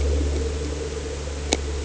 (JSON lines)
{"label": "anthrophony, boat engine", "recorder": "HydroMoth"}